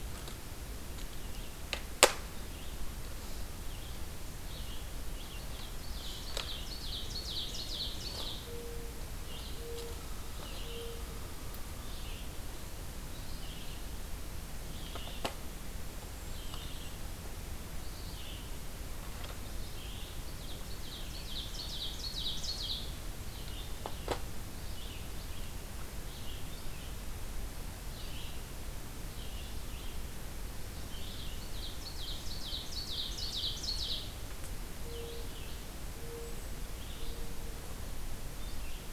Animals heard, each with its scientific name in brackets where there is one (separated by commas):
Ovenbird (Seiurus aurocapilla), Golden-crowned Kinglet (Regulus satrapa), Red-eyed Vireo (Vireo olivaceus), Mourning Dove (Zenaida macroura)